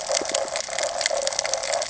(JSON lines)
{"label": "ambient", "recorder": "HydroMoth"}